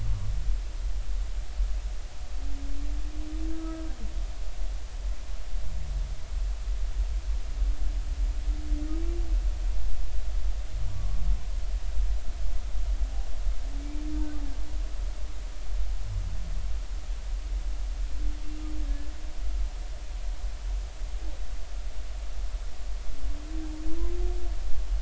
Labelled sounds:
3.5	3.8	humpback whale, 1.2 to 1.3 kHz
10.9	11.2	humpback whale, 1.0 to 1.2 kHz

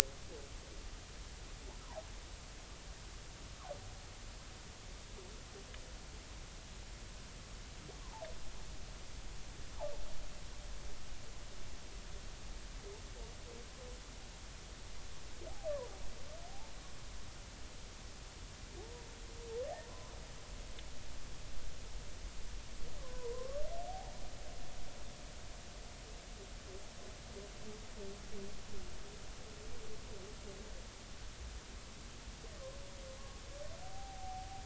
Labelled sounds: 8.0	8.3	humpback whale, 0.80 to 1.2 kHz
23.0	24.2	humpback whale, 0.80 to 1.2 kHz
33.8	34.5	humpback whale, 0.80 to 0.90 kHz

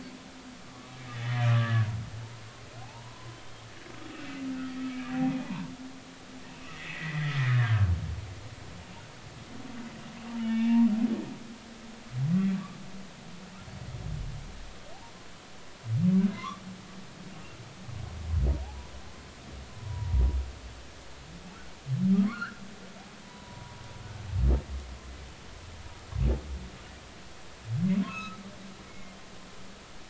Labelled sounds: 0.7	1.9	humpback whale, 1.1 to 3.5 kHz
2.8	3.3	humpback whale, 0.80 to 1.1 kHz
4.6	5.1	humpback whale, 1.8 to 2.3 kHz
5.4	5.7	humpback whale, 0.83 to 1.2 kHz
6.5	7.9	humpback whale, 1.5 to 2.8 kHz
10.3	10.9	humpback whale, 0.86 to 3.5 kHz
16.4	16.6	humpback whale, 0.99 to 1.3 kHz
19.7	20.2	humpback whale, 0.83 to 1.1 kHz
22.3	22.6	humpback whale, 1.0 to 4.5 kHz
23.2	23.8	humpback whale, 0.93 to 1.1 kHz
28.1	29.2	humpback whale, 1.2 to 2.8 kHz

